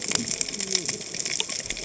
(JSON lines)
{"label": "biophony, cascading saw", "recorder": "HydroMoth"}